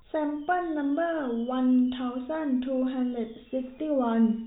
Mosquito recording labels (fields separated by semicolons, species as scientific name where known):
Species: no mosquito; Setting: cup